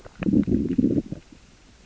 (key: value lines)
label: biophony, growl
recorder: SoundTrap 600 or HydroMoth